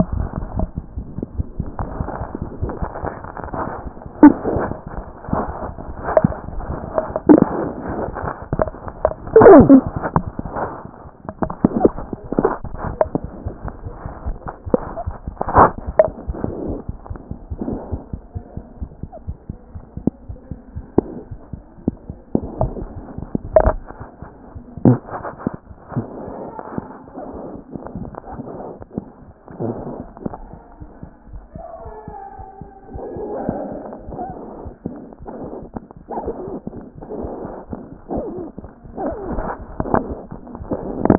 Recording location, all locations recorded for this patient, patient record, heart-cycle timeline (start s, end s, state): aortic valve (AV)
aortic valve (AV)+mitral valve (MV)
#Age: Neonate
#Sex: Male
#Height: 47.0 cm
#Weight: 2.6 kg
#Pregnancy status: False
#Murmur: Unknown
#Murmur locations: nan
#Most audible location: nan
#Systolic murmur timing: nan
#Systolic murmur shape: nan
#Systolic murmur grading: nan
#Systolic murmur pitch: nan
#Systolic murmur quality: nan
#Diastolic murmur timing: nan
#Diastolic murmur shape: nan
#Diastolic murmur grading: nan
#Diastolic murmur pitch: nan
#Diastolic murmur quality: nan
#Outcome: Abnormal
#Campaign: 2014 screening campaign
0.00	18.33	unannotated
18.33	18.41	S1
18.41	18.56	systole
18.56	18.64	S2
18.64	18.80	diastole
18.80	18.90	S1
18.90	19.02	systole
19.02	19.10	S2
19.10	19.28	diastole
19.28	19.36	S1
19.36	19.48	systole
19.48	19.58	S2
19.58	19.76	diastole
19.76	19.84	S1
19.84	19.95	systole
19.95	20.03	S2
20.03	20.30	diastole
20.30	20.38	S1
20.38	20.52	systole
20.52	20.60	S2
20.60	20.76	diastole
20.76	20.86	S1
20.86	20.98	systole
20.98	21.08	S2
21.08	21.32	diastole
21.32	21.40	S1
21.40	21.54	systole
21.54	21.64	S2
21.64	21.88	diastole
21.88	21.96	S1
21.96	22.08	systole
22.08	22.16	S2
22.16	22.26	diastole
22.26	41.18	unannotated